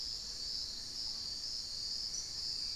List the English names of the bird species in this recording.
Fasciated Antshrike, unidentified bird